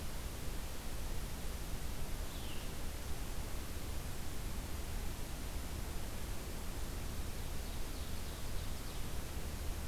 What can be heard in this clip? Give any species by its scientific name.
Vireo olivaceus, Seiurus aurocapilla